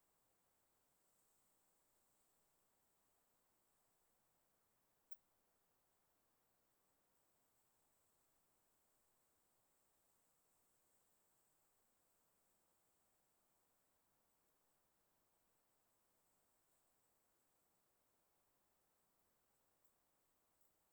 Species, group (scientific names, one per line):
Helicocercus triguttatus
Orthoptera